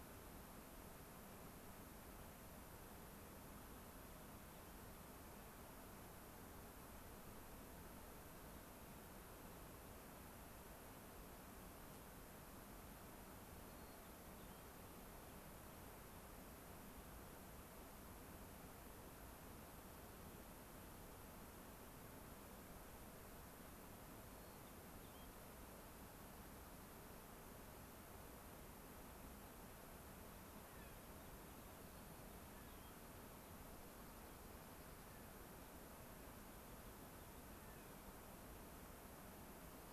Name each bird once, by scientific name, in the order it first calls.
Zonotrichia leucophrys, Nucifraga columbiana, Salpinctes obsoletus